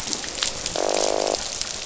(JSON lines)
{"label": "biophony, croak", "recorder": "SoundTrap 500"}